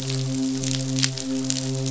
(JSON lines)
{"label": "biophony, midshipman", "recorder": "SoundTrap 500"}